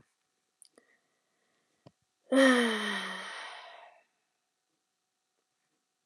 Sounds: Sigh